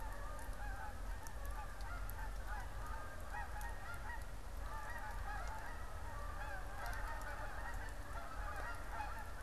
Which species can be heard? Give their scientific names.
Branta canadensis